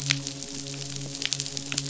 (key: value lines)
label: biophony, midshipman
recorder: SoundTrap 500